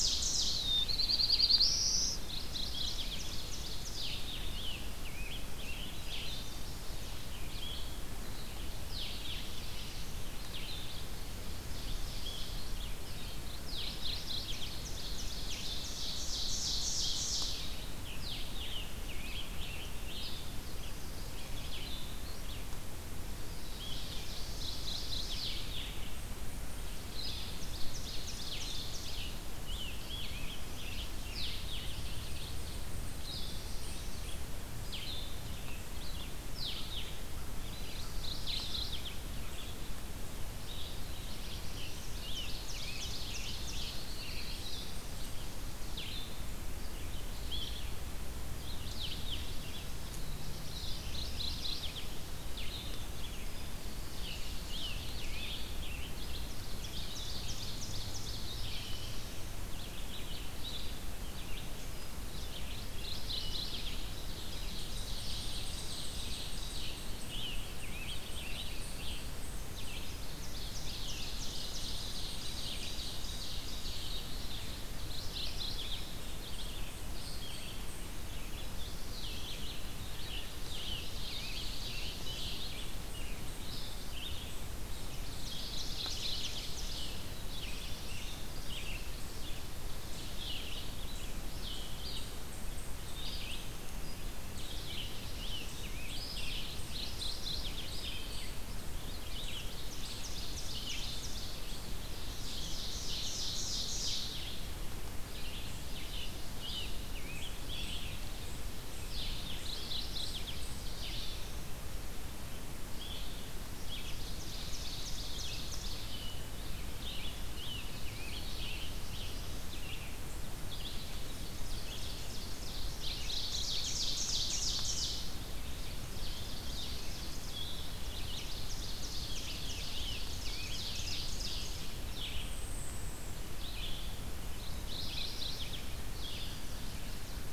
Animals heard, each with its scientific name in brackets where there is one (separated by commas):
Mourning Warbler (Geothlypis philadelphia), Red-eyed Vireo (Vireo olivaceus), Black-throated Blue Warbler (Setophaga caerulescens), Ovenbird (Seiurus aurocapilla), Eastern Chipmunk (Tamias striatus), Scarlet Tanager (Piranga olivacea)